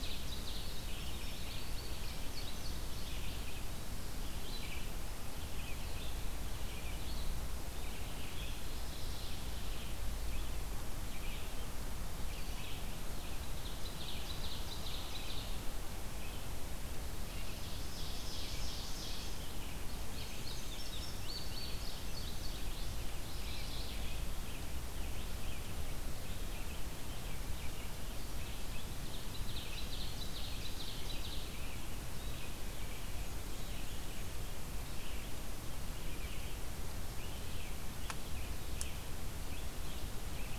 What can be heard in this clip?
Ovenbird, Red-eyed Vireo, Indigo Bunting, Mourning Warbler, Black-and-white Warbler